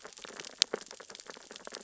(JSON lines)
{"label": "biophony, sea urchins (Echinidae)", "recorder": "SoundTrap 600 or HydroMoth"}